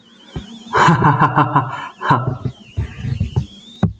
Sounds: Laughter